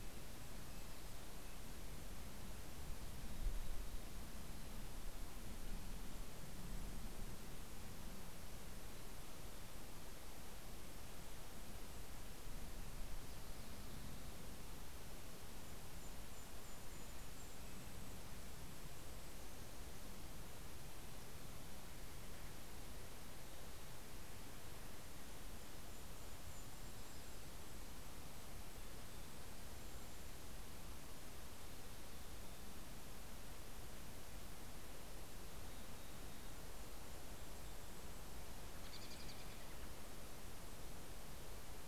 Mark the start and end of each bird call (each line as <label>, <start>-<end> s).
Red-breasted Nuthatch (Sitta canadensis), 0.0-2.0 s
Golden-crowned Kinglet (Regulus satrapa), 14.8-19.6 s
Golden-crowned Kinglet (Regulus satrapa), 25.1-30.6 s
Mountain Chickadee (Poecile gambeli), 27.9-29.7 s
Mountain Chickadee (Poecile gambeli), 31.2-33.1 s
Mountain Chickadee (Poecile gambeli), 35.4-38.3 s
Golden-crowned Kinglet (Regulus satrapa), 35.9-39.1 s
American Robin (Turdus migratorius), 38.7-39.9 s